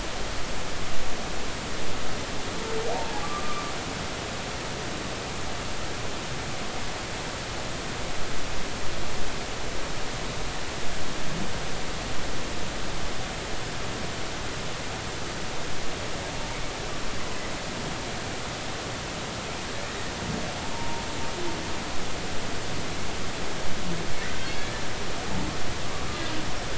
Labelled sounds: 2.9	3.7	humpback whale, 0.80 to 1.3 kHz
20.7	21.1	humpback whale, 0.90 to 0.99 kHz
24.6	24.8	humpback whale, 1.6 to 1.8 kHz

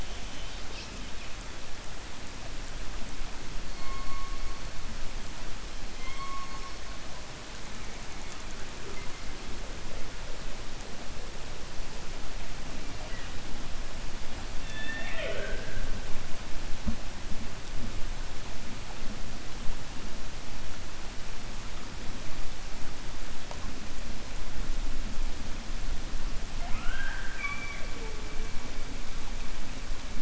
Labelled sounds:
5.9	6.6	killer whale, 1.0 to 4.2 kHz
14.5	15.9	killer whale, 0.41 to 3.6 kHz

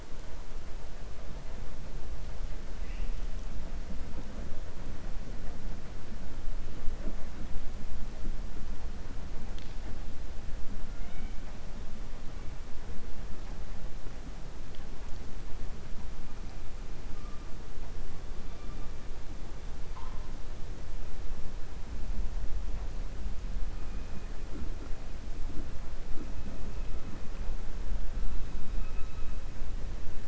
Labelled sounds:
10.9	11.4	killer whale, 1.4 to 3.8 kHz

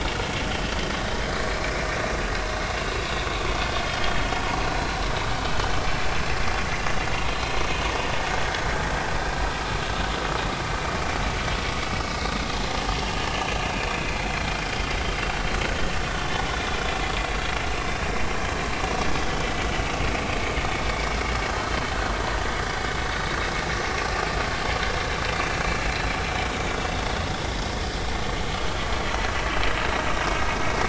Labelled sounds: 1.5	1.9	vessel noise, 2.2 to 2.5 kHz
3.9	5.0	vessel noise, 3.1 to 4.3 kHz
6.7	7.6	vessel noise, 2.7 to 4.3 kHz
13.7	14.0	vessel noise, 2.3 to 2.6 kHz
19.7	20.0	vessel noise, 2.5 to 3.0 kHz

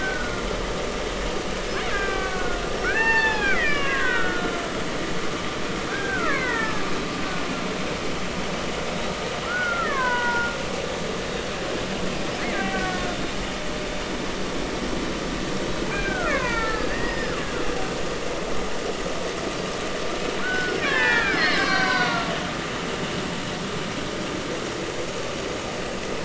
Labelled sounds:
0.0	0.4	killer whale, Bigg's (transient), 1.3 to 1.6 kHz
1.9	5.6	killer whale, Bigg's (transient), 0.80 to 6.4 kHz
5.9	6.8	killer whale, Bigg's (transient), 0.83 to 2.3 kHz
9.5	10.5	killer whale, Bigg's (transient), 0.90 to 2.0 kHz
12.4	13.0	killer whale, Bigg's (transient), 1.4 to 2.4 kHz
15.9	17.4	killer whale, Bigg's (transient), 0.86 to 5.2 kHz
20.4	22.3	killer whale, Bigg's (transient), 0.83 to 5.8 kHz

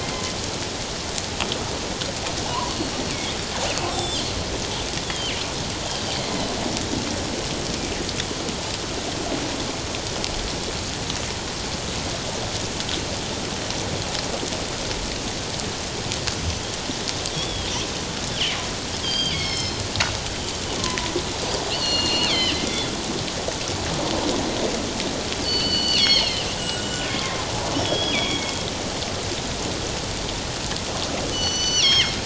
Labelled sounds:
0.0	0.4	killer whale, northern resident, G clan, 2.0 to 2.2 kHz
2.5	3.4	killer whale, northern resident, G clan, 0.91 to 2.4 kHz
3.9	5.4	killer whale, northern resident, G clan, 2.6 to 5.6 kHz
16.4	16.6	killer whale, northern resident, G clan, 5.9 to 6.2 kHz
17.3	17.7	killer whale, northern resident, G clan, 3.1 to 3.5 kHz
18.3	18.5	killer whale, northern resident, G clan, 2.8 to 3.5 kHz
19.0	19.9	killer whale, northern resident, G clan, 2.0 to 5.4 kHz
20.8	22.9	killer whale, northern resident, G clan, 0.94 to 7.2 kHz
25.4	27.4	killer whale, northern resident, G clan, 1.0 to 7.9 kHz
27.8	28.6	killer whale, northern resident, G clan, 2.1 to 5.7 kHz
31.3	32.2	killer whale, northern resident, G clan, 1.8 to 6.1 kHz

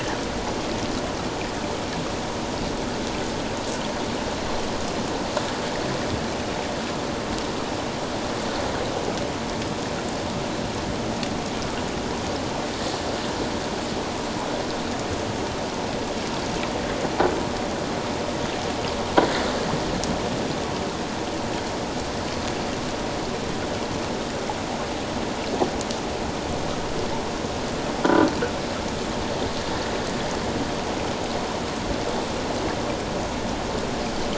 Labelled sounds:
28.0	28.3	croaking sound likely from a nearby submerged object, 1.3 to 1.6 kHz

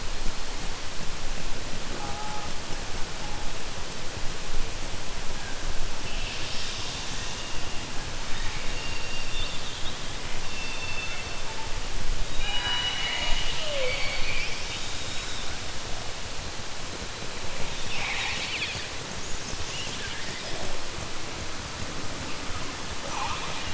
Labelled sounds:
8.2	9.6	killer whale, southern resident, 0.93 to 4.7 kHz
10.5	11.2	killer whale, southern resident, 2.0 to 4.5 kHz
17.8	18.9	killer whale, southern resident, 0.81 to 5.5 kHz
23.0	23.7	killer whale, southern resident, 0.56 to 4.1 kHz

